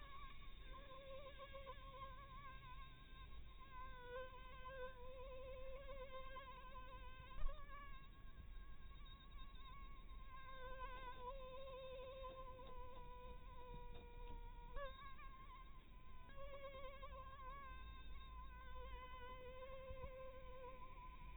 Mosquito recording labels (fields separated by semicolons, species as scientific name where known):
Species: Anopheles harrisoni; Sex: female; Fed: blood-fed; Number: one; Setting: cup